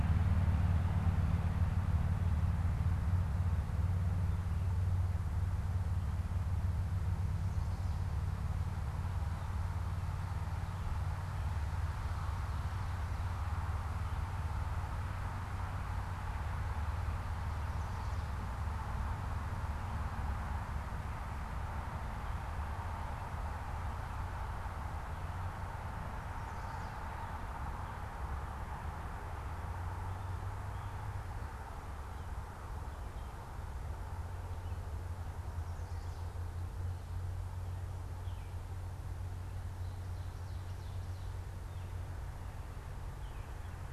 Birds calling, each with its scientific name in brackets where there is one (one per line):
Baltimore Oriole (Icterus galbula)